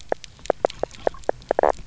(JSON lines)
{"label": "biophony, knock croak", "recorder": "SoundTrap 300"}